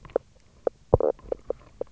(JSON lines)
{"label": "biophony, knock croak", "recorder": "SoundTrap 300"}